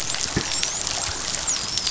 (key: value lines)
label: biophony, dolphin
recorder: SoundTrap 500